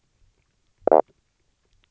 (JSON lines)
{"label": "biophony, knock croak", "recorder": "SoundTrap 300"}